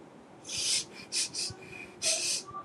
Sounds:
Sniff